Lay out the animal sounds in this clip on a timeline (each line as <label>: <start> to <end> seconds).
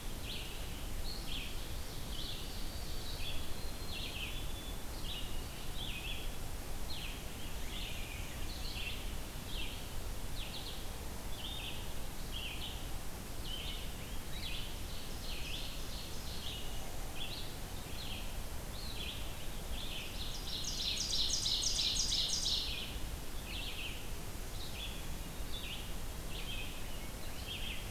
Red-eyed Vireo (Vireo olivaceus): 0.0 to 11.8 seconds
Ovenbird (Seiurus aurocapilla): 1.3 to 3.4 seconds
White-throated Sparrow (Zonotrichia albicollis): 2.2 to 5.7 seconds
Black-and-white Warbler (Mniotilta varia): 7.4 to 8.8 seconds
Red-eyed Vireo (Vireo olivaceus): 12.2 to 27.9 seconds
Rose-breasted Grosbeak (Pheucticus ludovicianus): 13.6 to 14.6 seconds
Ovenbird (Seiurus aurocapilla): 14.4 to 16.8 seconds
Ovenbird (Seiurus aurocapilla): 19.7 to 23.1 seconds
Rose-breasted Grosbeak (Pheucticus ludovicianus): 26.7 to 27.9 seconds